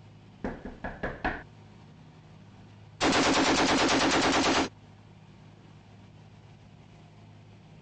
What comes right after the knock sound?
gunfire